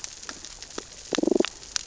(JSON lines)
{"label": "biophony, damselfish", "recorder": "SoundTrap 600 or HydroMoth"}